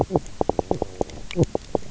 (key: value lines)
label: biophony, knock croak
recorder: SoundTrap 300